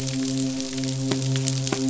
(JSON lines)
{"label": "biophony, midshipman", "recorder": "SoundTrap 500"}